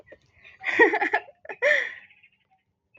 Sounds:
Laughter